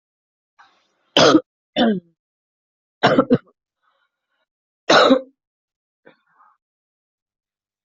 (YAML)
expert_labels:
- quality: ok
  cough_type: unknown
  dyspnea: false
  wheezing: false
  stridor: false
  choking: false
  congestion: false
  nothing: true
  diagnosis: healthy cough
  severity: pseudocough/healthy cough
age: 42
gender: female
respiratory_condition: false
fever_muscle_pain: false
status: symptomatic